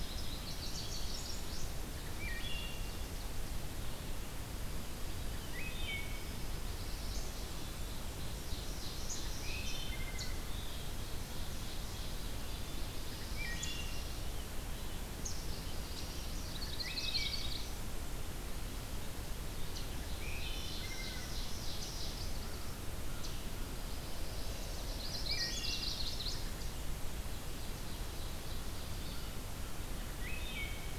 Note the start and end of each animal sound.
[0.00, 1.79] Indigo Bunting (Passerina cyanea)
[0.00, 19.95] Red-eyed Vireo (Vireo olivaceus)
[1.71, 3.55] Ovenbird (Seiurus aurocapilla)
[1.92, 3.10] Wood Thrush (Hylocichla mustelina)
[5.23, 6.31] Wood Thrush (Hylocichla mustelina)
[5.99, 7.54] Chestnut-sided Warbler (Setophaga pensylvanica)
[6.68, 8.61] Black-and-white Warbler (Mniotilta varia)
[7.80, 9.95] Ovenbird (Seiurus aurocapilla)
[9.41, 10.56] Wood Thrush (Hylocichla mustelina)
[10.47, 14.16] Ovenbird (Seiurus aurocapilla)
[13.10, 14.12] Wood Thrush (Hylocichla mustelina)
[15.94, 18.05] Chestnut-sided Warbler (Setophaga pensylvanica)
[16.38, 18.24] Black-and-white Warbler (Mniotilta varia)
[16.57, 17.68] Wood Thrush (Hylocichla mustelina)
[20.12, 22.54] Ovenbird (Seiurus aurocapilla)
[20.13, 21.48] Wood Thrush (Hylocichla mustelina)
[22.39, 23.27] American Crow (Corvus brachyrhynchos)
[23.60, 26.64] Chestnut-sided Warbler (Setophaga pensylvanica)
[25.18, 26.08] Wood Thrush (Hylocichla mustelina)
[26.23, 27.78] Black-and-white Warbler (Mniotilta varia)
[27.09, 29.28] Ovenbird (Seiurus aurocapilla)
[29.91, 30.98] Wood Thrush (Hylocichla mustelina)

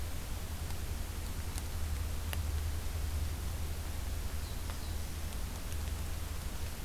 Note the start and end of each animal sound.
[4.36, 5.33] Black-throated Blue Warbler (Setophaga caerulescens)

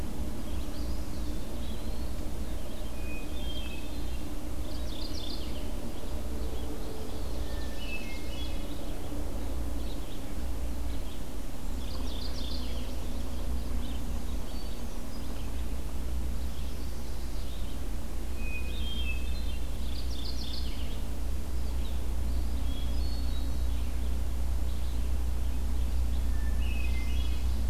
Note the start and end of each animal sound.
[0.00, 17.78] Red-eyed Vireo (Vireo olivaceus)
[0.40, 2.21] Eastern Wood-Pewee (Contopus virens)
[2.93, 4.31] Hermit Thrush (Catharus guttatus)
[4.53, 5.76] Mourning Warbler (Geothlypis philadelphia)
[6.71, 7.41] Eastern Wood-Pewee (Contopus virens)
[6.98, 8.92] Ovenbird (Seiurus aurocapilla)
[7.45, 8.79] Hermit Thrush (Catharus guttatus)
[11.62, 12.97] Mourning Warbler (Geothlypis philadelphia)
[14.37, 15.50] Hermit Thrush (Catharus guttatus)
[18.32, 19.78] Hermit Thrush (Catharus guttatus)
[19.59, 21.01] Mourning Warbler (Geothlypis philadelphia)
[21.43, 27.70] Red-eyed Vireo (Vireo olivaceus)
[22.38, 23.78] Hermit Thrush (Catharus guttatus)
[26.27, 27.56] Hermit Thrush (Catharus guttatus)

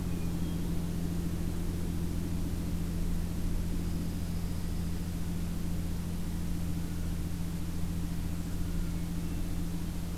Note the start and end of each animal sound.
[0.00, 0.76] Hermit Thrush (Catharus guttatus)
[3.67, 5.14] Dark-eyed Junco (Junco hyemalis)
[8.53, 9.55] Hermit Thrush (Catharus guttatus)

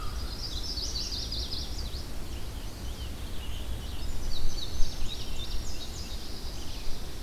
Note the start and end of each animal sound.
[0.00, 7.03] Red-eyed Vireo (Vireo olivaceus)
[0.02, 2.08] Chestnut-sided Warbler (Setophaga pensylvanica)
[1.92, 4.16] Scarlet Tanager (Piranga olivacea)
[4.04, 6.21] Indigo Bunting (Passerina cyanea)
[6.04, 7.22] Chestnut-sided Warbler (Setophaga pensylvanica)

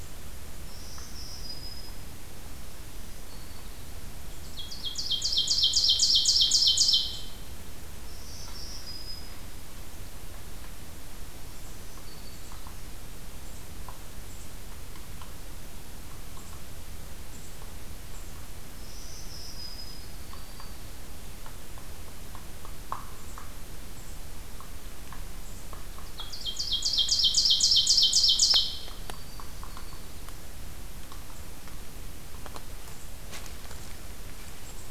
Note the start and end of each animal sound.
[0.63, 2.12] Black-throated Green Warbler (Setophaga virens)
[2.71, 3.97] Black-throated Green Warbler (Setophaga virens)
[4.75, 7.53] Ovenbird (Seiurus aurocapilla)
[7.87, 9.61] Black-throated Green Warbler (Setophaga virens)
[11.22, 12.70] Black-throated Green Warbler (Setophaga virens)
[18.66, 20.25] Black-throated Green Warbler (Setophaga virens)
[20.14, 30.48] Hairy Woodpecker (Dryobates villosus)
[25.91, 29.04] Ovenbird (Seiurus aurocapilla)
[28.66, 30.18] Broad-winged Hawk (Buteo platypterus)

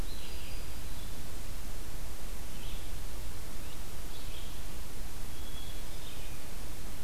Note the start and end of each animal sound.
[0.00, 7.04] Red-eyed Vireo (Vireo olivaceus)
[0.17, 1.07] Black-throated Green Warbler (Setophaga virens)
[5.13, 6.33] Hermit Thrush (Catharus guttatus)

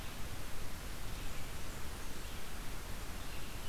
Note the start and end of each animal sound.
[0.00, 3.69] Red-eyed Vireo (Vireo olivaceus)
[0.87, 2.31] Blackburnian Warbler (Setophaga fusca)

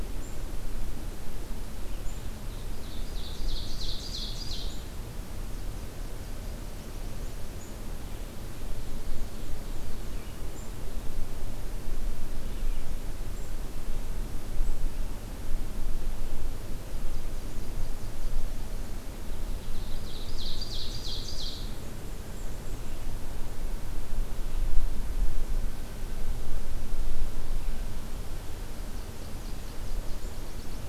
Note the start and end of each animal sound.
[2.57, 4.82] Ovenbird (Seiurus aurocapilla)
[5.43, 7.41] Nashville Warbler (Leiothlypis ruficapilla)
[8.69, 10.17] Black-and-white Warbler (Mniotilta varia)
[16.95, 18.91] Nashville Warbler (Leiothlypis ruficapilla)
[19.46, 21.73] Ovenbird (Seiurus aurocapilla)
[21.28, 23.00] Black-and-white Warbler (Mniotilta varia)
[28.70, 30.88] Nashville Warbler (Leiothlypis ruficapilla)

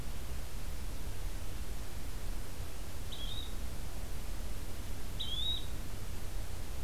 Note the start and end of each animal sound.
[3.02, 3.62] Yellow-bellied Flycatcher (Empidonax flaviventris)
[5.11, 5.79] Yellow-bellied Flycatcher (Empidonax flaviventris)

